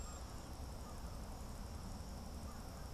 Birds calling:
Cedar Waxwing (Bombycilla cedrorum)
American Crow (Corvus brachyrhynchos)

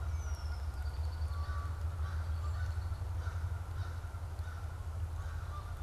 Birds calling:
American Crow (Corvus brachyrhynchos)
Canada Goose (Branta canadensis)
Red-winged Blackbird (Agelaius phoeniceus)

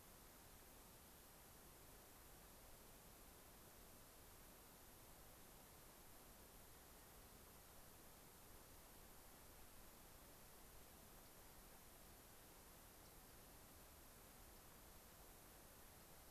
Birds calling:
Dark-eyed Junco (Junco hyemalis)

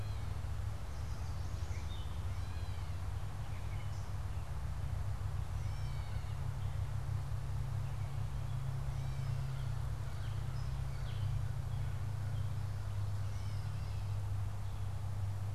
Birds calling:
American Crow (Corvus brachyrhynchos)
Gray Catbird (Dumetella carolinensis)

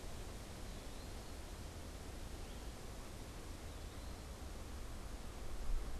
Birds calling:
Eastern Wood-Pewee (Contopus virens)

